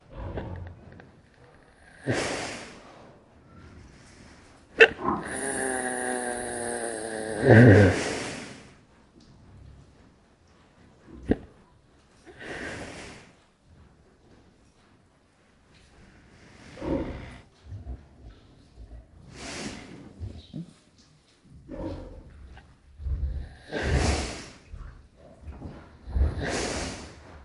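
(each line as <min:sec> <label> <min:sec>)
0:00.0 Pigs grunt in a barn. 0:00.8
0:02.1 A big pig exhales in a barn. 0:02.5
0:04.8 The noise of a large animal in a barn. 0:04.9
0:05.0 A pig snores loudly in a barn. 0:08.3
0:08.4 Water droplets hitting the floor in the background. 0:26.3
0:11.3 A pig hiccups loudly in a barn. 0:11.4
0:12.4 A pig snores loudly in a barn. 0:13.3
0:16.8 A pig snores loudly in a barn. 0:17.2
0:19.1 A pig snores loudly in a barn. 0:20.3
0:21.6 A pig grunts in the background. 0:22.4
0:23.7 A pig snores loudly in a barn. 0:24.4
0:26.3 A pig snores loudly in a barn. 0:27.0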